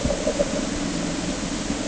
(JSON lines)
{"label": "anthrophony, boat engine", "recorder": "HydroMoth"}